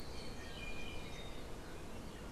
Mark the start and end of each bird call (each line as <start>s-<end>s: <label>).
0.1s-1.4s: Iiwi (Drepanis coccinea)